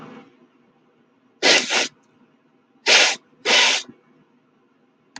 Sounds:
Sniff